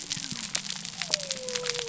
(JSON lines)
{"label": "biophony", "recorder": "SoundTrap 300"}